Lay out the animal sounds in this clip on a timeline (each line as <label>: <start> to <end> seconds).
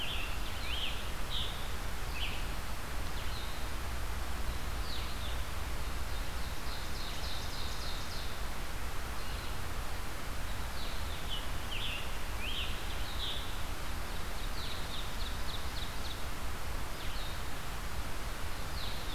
Scarlet Tanager (Piranga olivacea): 0.0 to 2.3 seconds
Blue-headed Vireo (Vireo solitarius): 0.0 to 19.1 seconds
Ovenbird (Seiurus aurocapilla): 5.8 to 8.6 seconds
Scarlet Tanager (Piranga olivacea): 11.1 to 13.7 seconds
Ovenbird (Seiurus aurocapilla): 14.1 to 16.5 seconds
Ovenbird (Seiurus aurocapilla): 18.6 to 19.1 seconds